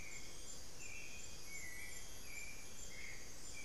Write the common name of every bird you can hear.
Hauxwell's Thrush